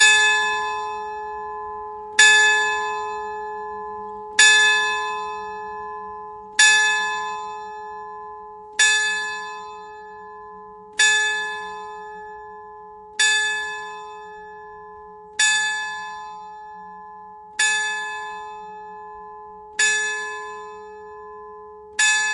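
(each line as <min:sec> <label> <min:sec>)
0:00.0 A bell rings repeatedly outdoors. 0:22.3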